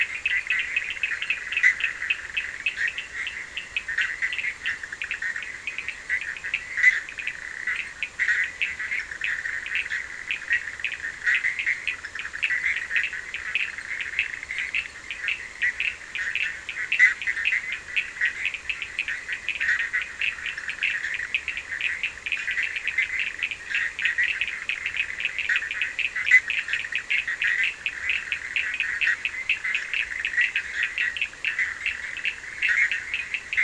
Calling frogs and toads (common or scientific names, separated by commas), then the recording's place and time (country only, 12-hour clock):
Bischoff's tree frog, Cochran's lime tree frog
Brazil, 12:45am